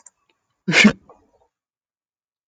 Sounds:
Sneeze